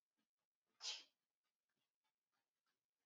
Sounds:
Sneeze